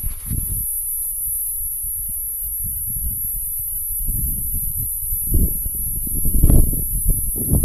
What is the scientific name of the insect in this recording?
Tibicinoides minuta